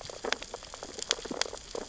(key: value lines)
label: biophony, sea urchins (Echinidae)
recorder: SoundTrap 600 or HydroMoth